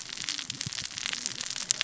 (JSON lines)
{"label": "biophony, cascading saw", "recorder": "SoundTrap 600 or HydroMoth"}